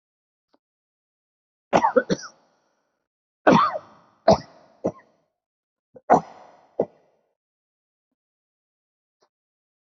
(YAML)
expert_labels:
- quality: poor
  cough_type: unknown
  dyspnea: false
  wheezing: false
  stridor: false
  choking: false
  congestion: false
  nothing: true
  diagnosis: healthy cough
  severity: pseudocough/healthy cough
age: 55
gender: male
respiratory_condition: true
fever_muscle_pain: false
status: COVID-19